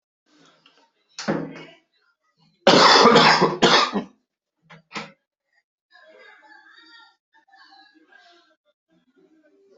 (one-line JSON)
{"expert_labels": [{"quality": "ok", "cough_type": "unknown", "dyspnea": false, "wheezing": false, "stridor": false, "choking": false, "congestion": false, "nothing": true, "diagnosis": "lower respiratory tract infection", "severity": "mild"}]}